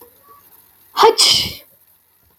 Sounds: Sneeze